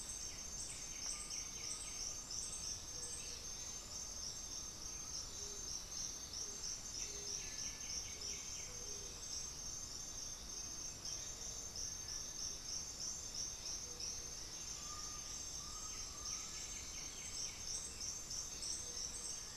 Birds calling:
White-winged Becard (Pachyramphus polychopterus), Black-throated Antbird (Myrmophylax atrothorax), Scaled Pigeon (Patagioenas speciosa), Undulated Tinamou (Crypturellus undulatus)

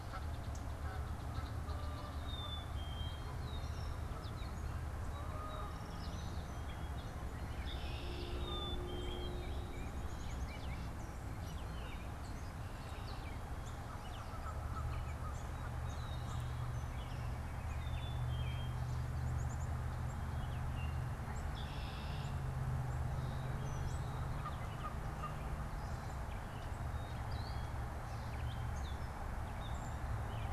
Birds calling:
Song Sparrow (Melospiza melodia), Red-winged Blackbird (Agelaius phoeniceus), Gray Catbird (Dumetella carolinensis), Black-capped Chickadee (Poecile atricapillus), Canada Goose (Branta canadensis)

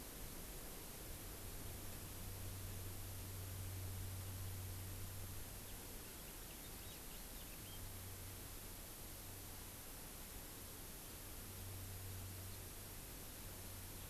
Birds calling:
House Finch (Haemorhous mexicanus)

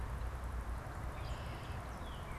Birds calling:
Red-winged Blackbird (Agelaius phoeniceus), Northern Cardinal (Cardinalis cardinalis)

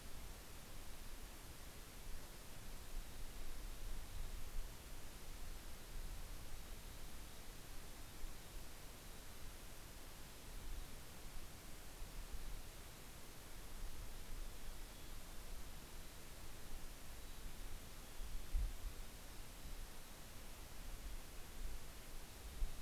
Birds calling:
Mountain Chickadee (Poecile gambeli)

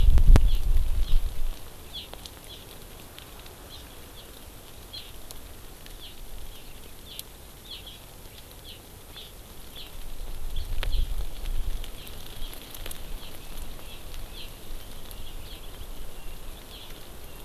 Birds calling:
Hawaii Amakihi (Chlorodrepanis virens)

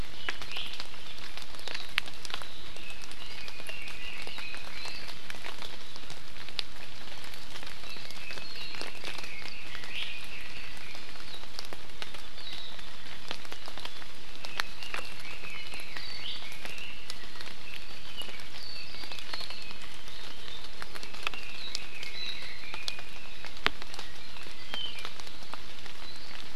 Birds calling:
Iiwi (Drepanis coccinea), Apapane (Himatione sanguinea), Red-billed Leiothrix (Leiothrix lutea)

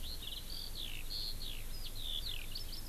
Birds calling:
Eurasian Skylark (Alauda arvensis)

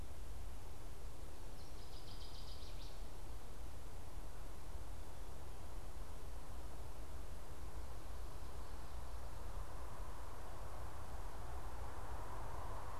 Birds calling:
Northern Waterthrush (Parkesia noveboracensis)

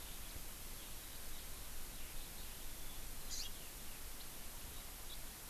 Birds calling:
Eurasian Skylark (Alauda arvensis), Hawaii Amakihi (Chlorodrepanis virens)

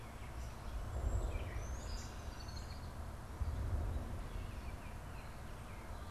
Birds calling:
Baltimore Oriole (Icterus galbula), Red-winged Blackbird (Agelaius phoeniceus), Gray Catbird (Dumetella carolinensis)

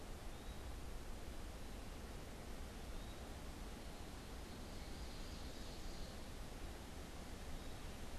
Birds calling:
Ovenbird (Seiurus aurocapilla), Eastern Wood-Pewee (Contopus virens)

